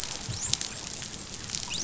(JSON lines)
{"label": "biophony, dolphin", "recorder": "SoundTrap 500"}